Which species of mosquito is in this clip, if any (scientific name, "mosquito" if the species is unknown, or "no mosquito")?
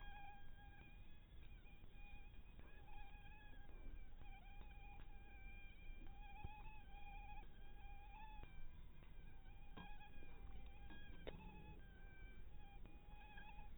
mosquito